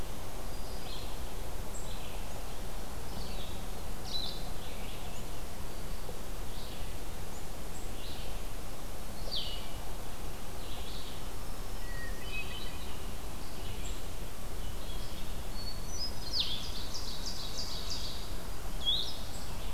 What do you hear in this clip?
Blue-headed Vireo, Red-eyed Vireo, Black-throated Green Warbler, Hermit Thrush, Ovenbird